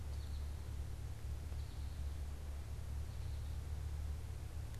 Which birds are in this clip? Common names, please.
American Goldfinch